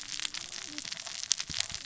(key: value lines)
label: biophony, cascading saw
recorder: SoundTrap 600 or HydroMoth